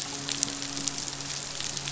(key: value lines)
label: biophony, midshipman
recorder: SoundTrap 500